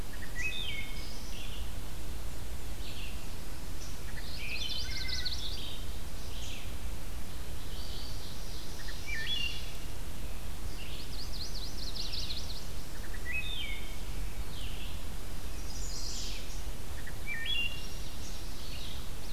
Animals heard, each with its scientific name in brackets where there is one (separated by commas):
Black-and-white Warbler (Mniotilta varia), Chestnut-sided Warbler (Setophaga pensylvanica), Red-eyed Vireo (Vireo olivaceus), Ovenbird (Seiurus aurocapilla), Wood Thrush (Hylocichla mustelina)